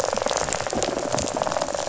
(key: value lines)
label: biophony
recorder: SoundTrap 500

label: biophony, rattle
recorder: SoundTrap 500